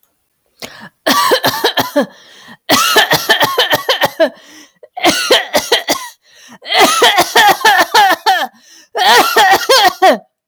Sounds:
Cough